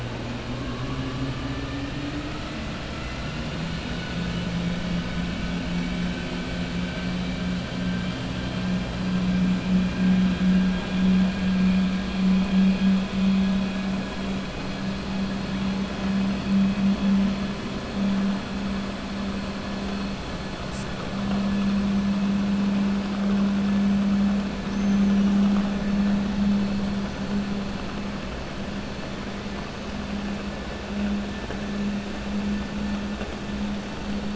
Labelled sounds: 2.9	3.4	killer whale, 1.3 to 2.8 kHz
24.6	25.4	killer whale, 5.6 to 6.7 kHz

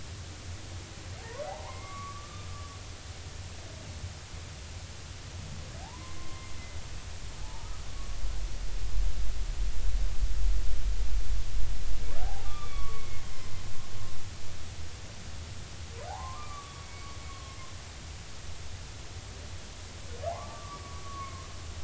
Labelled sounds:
1.2	2.7	humpback whale, 0.80 to 2.3 kHz
5.8	6.5	humpback whale, 0.80 to 1.1 kHz
7.4	7.7	humpback whale, 0.83 to 1.0 kHz
12.2	13.3	humpback whale, 0.80 to 3.6 kHz
16.1	17.6	humpback whale, 0.80 to 1.3 kHz
20.3	21.5	humpback whale, 0.80 to 1.3 kHz

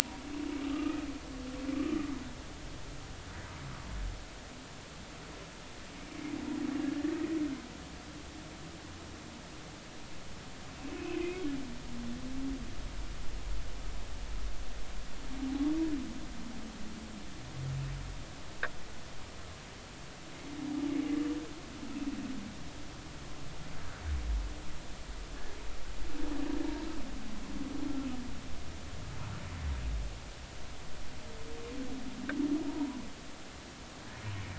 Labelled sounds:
0.7	1.0	humpback whale, 1.1 to 1.3 kHz
11.2	11.4	humpback whale, 2.0 to 2.3 kHz
32.7	33.0	humpback whale, 0.86 to 1.0 kHz

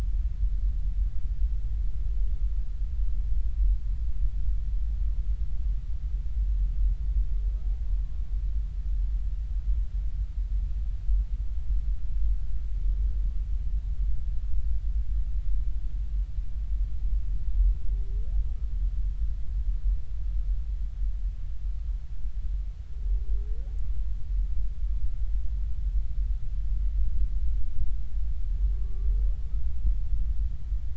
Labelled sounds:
28.8	29.1	humpback whale, 1.1 to 1.2 kHz

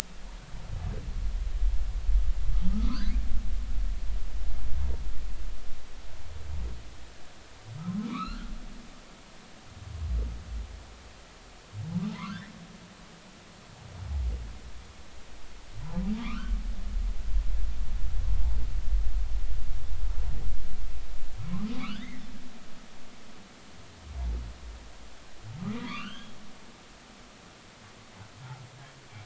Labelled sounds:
2.7	3.1	humpback whale, 0.96 to 1.9 kHz
8.0	8.5	humpback whale, 0.93 to 4.5 kHz
12.1	12.5	humpback whale, 0.83 to 2.0 kHz
16.2	16.5	humpback whale, 0.99 to 3.2 kHz
21.8	22.3	humpback whale, 1.1 to 3.0 kHz
25.8	26.3	humpback whale, 0.93 to 3.4 kHz

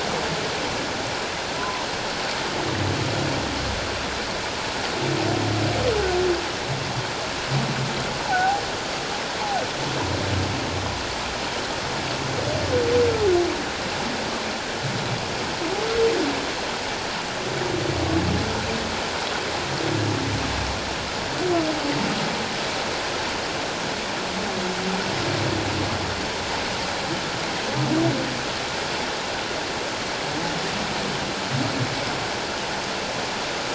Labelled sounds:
1.6	1.9	humpback whale, 0.91 to 1.1 kHz
8.2	8.6	humpback whale, 0.78 to 0.97 kHz

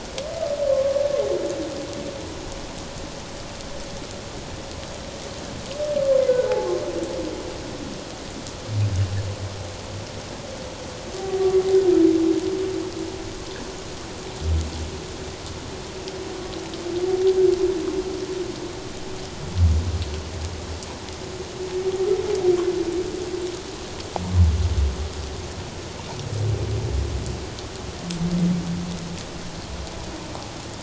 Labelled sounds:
6.3	6.8	humpback whale, 0.78 to 1.6 kHz

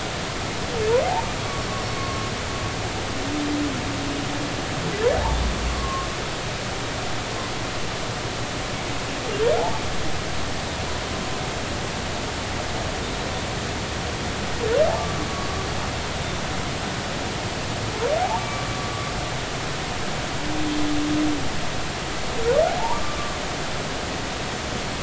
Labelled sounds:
2.0	2.2	humpback whale, 1.0 to 1.2 kHz
5.7	6.1	humpback whale, 1.0 to 1.2 kHz
18.4	18.6	humpback whale, 2.3 to 2.4 kHz
22.7	23.0	humpback whale, 0.80 to 1.1 kHz

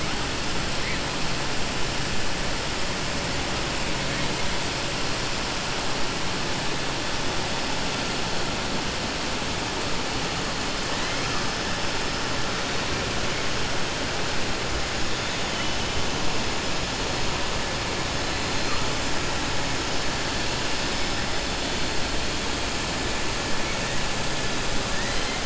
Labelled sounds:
24.9	25.4	killer whale, southern resident, 1.1 to 3.1 kHz

